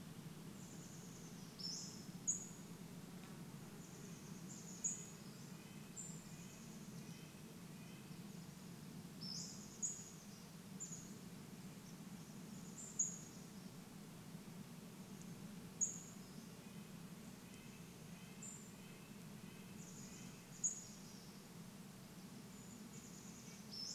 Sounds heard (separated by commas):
Douglas squirrel rattle, Red-breasted Nuthatch song, insect buzz, Pacific-slope Flycatcher call, Chestnut-backed Chickadee call